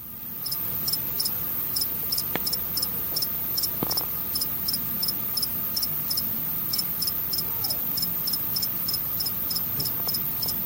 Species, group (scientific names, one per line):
Acheta domesticus
Orthoptera